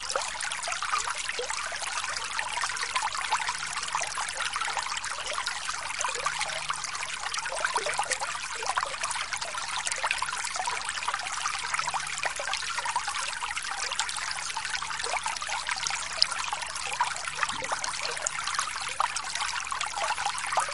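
0.0s Water slowly trickling down a stream and hitting rocks along the way. 20.7s

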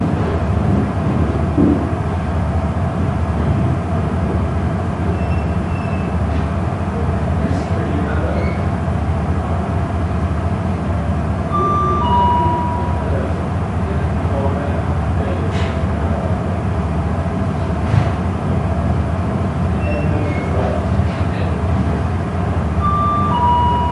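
0.0s Muffled conversation in a hollow room. 23.9s
0.4s Distant hollow thuds repeating. 1.9s
5.0s A short creaking sound in the distance. 6.6s
8.3s A short creaking sound in the distance. 9.0s
11.4s An electronic chime sounds briefly in the distance. 13.2s
17.8s A short, distant thud. 18.3s
19.7s A distant creaking. 21.2s
22.7s An electronic chime sounds briefly in the distance. 23.9s

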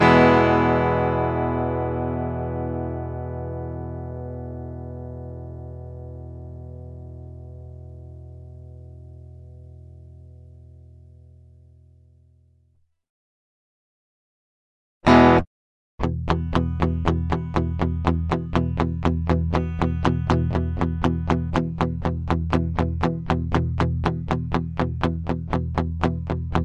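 0.0s A chord is strummed once on an acoustic guitar and sustains for a long time. 13.6s
14.9s An acoustic guitar plays a short, muted chord. 15.7s
15.8s A short, muted chord is strummed repeatedly on an acoustic guitar. 26.6s

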